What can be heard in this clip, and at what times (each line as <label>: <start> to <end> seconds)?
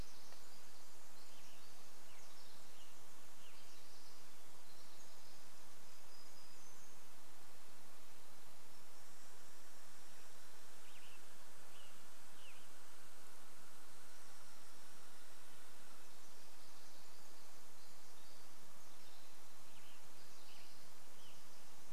Western Tanager song: 0 to 4 seconds
Pacific Wren song: 0 to 8 seconds
Red-breasted Nuthatch song: 4 to 8 seconds
warbler song: 4 to 8 seconds
Douglas squirrel rattle: 8 to 16 seconds
Western Tanager song: 10 to 14 seconds
Red-breasted Nuthatch song: 14 to 18 seconds
Pacific Wren song: 16 to 22 seconds
Western Tanager song: 18 to 22 seconds